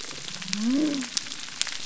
{"label": "biophony", "recorder": "SoundTrap 300"}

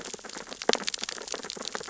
{"label": "biophony, sea urchins (Echinidae)", "recorder": "SoundTrap 600 or HydroMoth"}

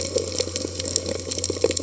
{"label": "biophony", "recorder": "HydroMoth"}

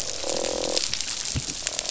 {"label": "biophony, croak", "recorder": "SoundTrap 500"}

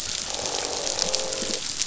{"label": "biophony, croak", "recorder": "SoundTrap 500"}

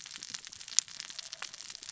{"label": "biophony, cascading saw", "recorder": "SoundTrap 600 or HydroMoth"}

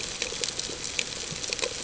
{"label": "ambient", "recorder": "HydroMoth"}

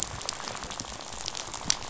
{"label": "biophony, rattle", "recorder": "SoundTrap 500"}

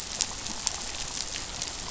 {"label": "biophony", "recorder": "SoundTrap 500"}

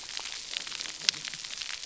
{"label": "biophony, cascading saw", "recorder": "SoundTrap 300"}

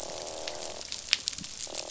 {"label": "biophony, croak", "recorder": "SoundTrap 500"}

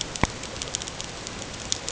{"label": "ambient", "recorder": "HydroMoth"}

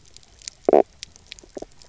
{"label": "biophony, knock croak", "recorder": "SoundTrap 300"}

